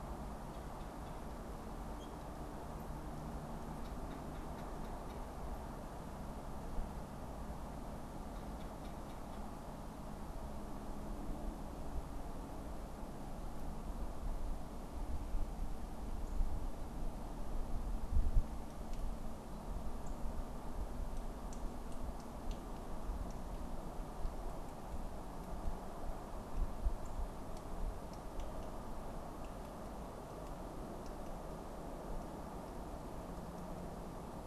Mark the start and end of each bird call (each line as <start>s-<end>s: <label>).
0.4s-5.3s: Red-bellied Woodpecker (Melanerpes carolinus)
8.1s-9.6s: Red-bellied Woodpecker (Melanerpes carolinus)
19.9s-20.2s: unidentified bird
26.9s-27.2s: unidentified bird